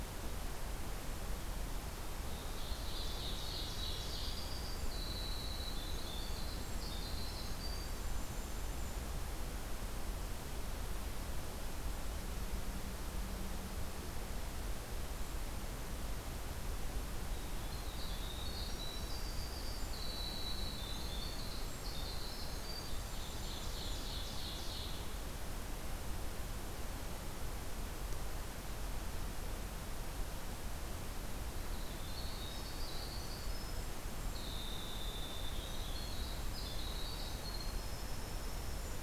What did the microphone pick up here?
Ovenbird, Winter Wren